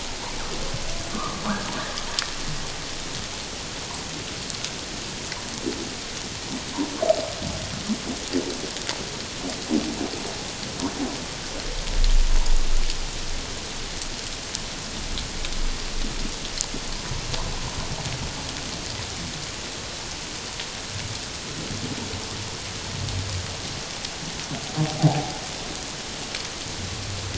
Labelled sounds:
1.1	1.4	humpback whale, 1.0 to 1.3 kHz
25.0	25.3	humpback whale, 0.78 to 0.91 kHz

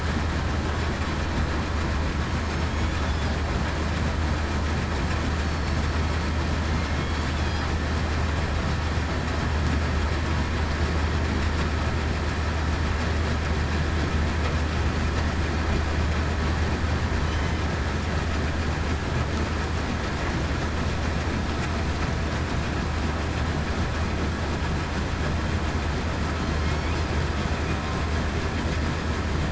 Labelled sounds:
17.2	17.6	killer whale, southern resident, 3.0 to 3.1 kHz
26.3	26.9	killer whale, southern resident, 4.1 to 4.6 kHz

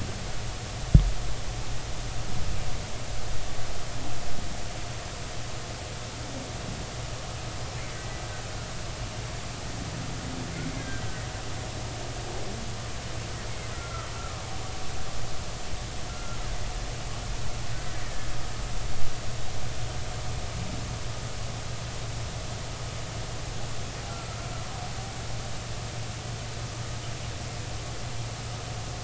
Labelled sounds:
10.8	11.0	killer whale, Bigg's (transient), 1.5 to 1.7 kHz
13.7	14.4	killer whale, Bigg's (transient), 1.1 to 1.5 kHz
16.1	16.4	killer whale, Bigg's (transient), 1.3 to 1.4 kHz
24.1	24.4	killer whale, Bigg's (transient), 1.3 to 1.4 kHz

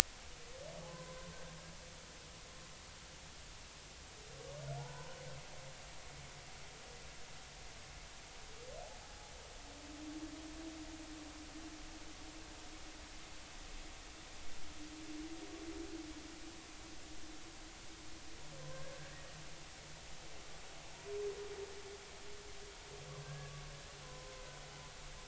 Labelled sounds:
0.9	1.3	humpback whale, 0.96 to 1.1 kHz
4.8	5.2	humpback whale, 0.80 to 1.5 kHz
9.0	9.3	humpback whale, 0.80 to 0.90 kHz
18.9	19.2	humpback whale, 1.5 to 1.7 kHz
23.2	23.5	humpback whale, 1.5 to 1.7 kHz
24.0	24.4	humpback whale, 0.96 to 1.1 kHz

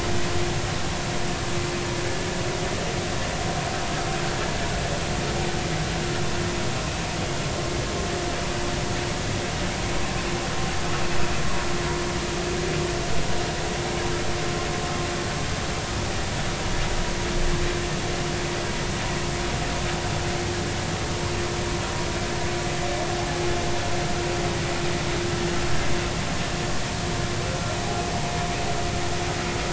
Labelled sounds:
23.2	23.5	humpback whale, 0.80 to 0.90 kHz

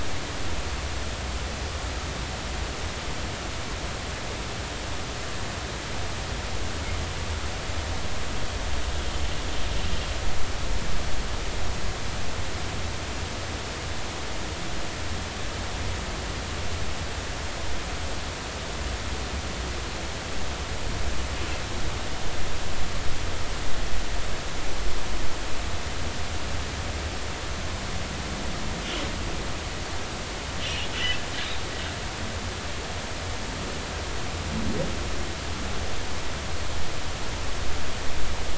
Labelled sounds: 30.6	30.9	humpback whale, 2.7 to 3.0 kHz

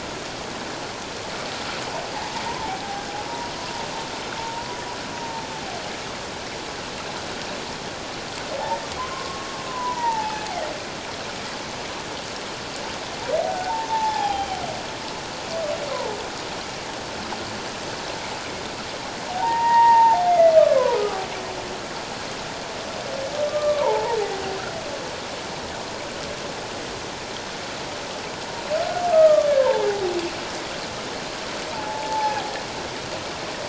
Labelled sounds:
2.1	3.5	humpback whale, 0.78 to 1.1 kHz
4.4	5.5	humpback whale, 0.84 to 0.97 kHz
9.0	10.5	humpback whale, 0.81 to 2.6 kHz
13.4	14.6	humpback whale, 0.78 to 3.3 kHz
19.3	21.2	humpback whale, 0.78 to 2.2 kHz
23.5	24.2	humpback whale, 0.81 to 1.3 kHz
29.1	29.9	humpback whale, 0.81 to 1.3 kHz
31.7	32.4	humpback whale, 0.78 to 1.0 kHz

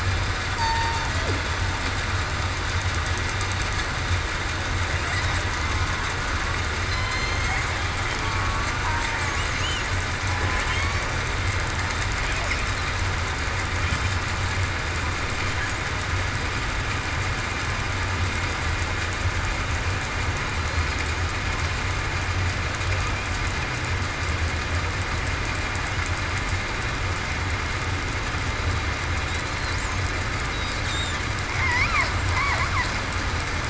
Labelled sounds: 0.6	0.9	killer whale, southern resident, 1.8 to 8.0 kHz
6.9	7.6	killer whale, southern resident, 2.0 to 6.6 kHz
8.2	9.2	killer whale, southern resident, 0.89 to 1.2 kHz

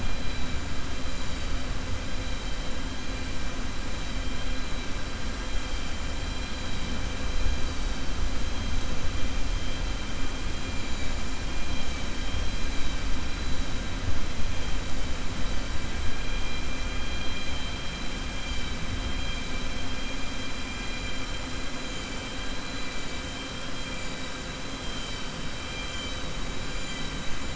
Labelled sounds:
25.8	26.4	vessel noise, 2.3 to 3.9 kHz

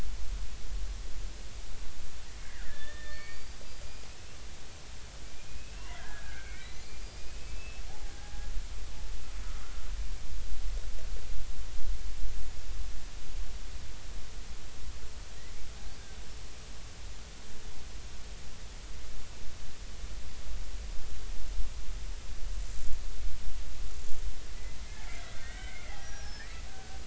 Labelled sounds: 2.5	4.1	killer whale, Bigg's (transient), 1.4 to 5.0 kHz
5.5	8.5	killer whale, Bigg's (transient), 0.80 to 5.0 kHz
9.4	9.8	killer whale, Bigg's (transient), 1.2 to 1.5 kHz
24.8	27.0	killer whale, Bigg's (transient), 0.80 to 5.9 kHz

